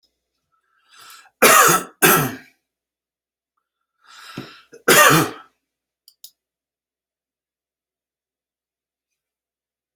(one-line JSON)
{"expert_labels": [{"quality": "ok", "cough_type": "dry", "dyspnea": false, "wheezing": false, "stridor": false, "choking": false, "congestion": false, "nothing": true, "diagnosis": "healthy cough", "severity": "pseudocough/healthy cough"}, {"quality": "good", "cough_type": "dry", "dyspnea": false, "wheezing": false, "stridor": false, "choking": false, "congestion": false, "nothing": true, "diagnosis": "COVID-19", "severity": "mild"}, {"quality": "good", "cough_type": "dry", "dyspnea": false, "wheezing": false, "stridor": false, "choking": false, "congestion": false, "nothing": true, "diagnosis": "upper respiratory tract infection", "severity": "mild"}, {"quality": "good", "cough_type": "dry", "dyspnea": false, "wheezing": false, "stridor": false, "choking": false, "congestion": false, "nothing": true, "diagnosis": "upper respiratory tract infection", "severity": "mild"}], "age": 54, "gender": "male", "respiratory_condition": true, "fever_muscle_pain": false, "status": "symptomatic"}